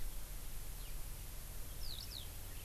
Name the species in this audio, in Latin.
Alauda arvensis